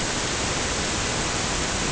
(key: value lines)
label: ambient
recorder: HydroMoth